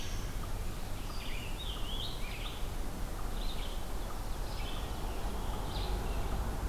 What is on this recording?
Red-eyed Vireo, Scarlet Tanager